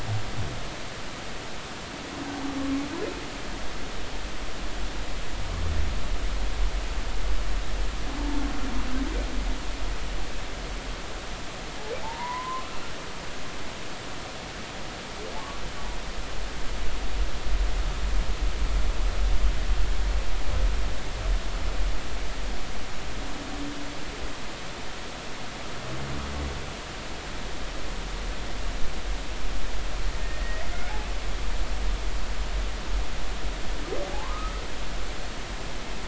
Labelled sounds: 12.0	12.7	humpback whale, 0.83 to 1.1 kHz
30.1	30.7	humpback whale, 1.8 to 2.0 kHz
34.2	34.6	humpback whale, 0.96 to 1.3 kHz

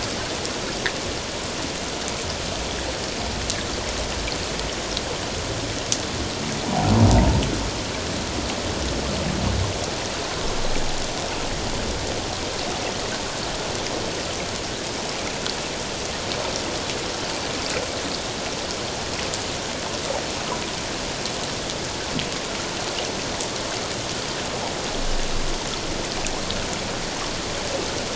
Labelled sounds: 7.1	7.4	humpback whale, 0.84 to 1.0 kHz

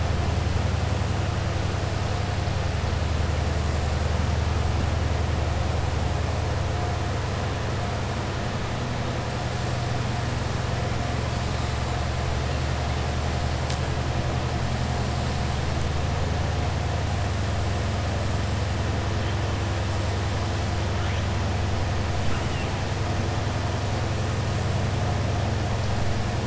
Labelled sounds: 22.2	22.7	killer whale, southern resident, 1.4 to 3.7 kHz

